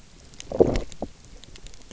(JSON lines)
{"label": "biophony, low growl", "recorder": "SoundTrap 300"}